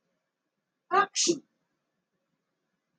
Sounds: Sniff